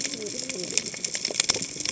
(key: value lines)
label: biophony, cascading saw
recorder: HydroMoth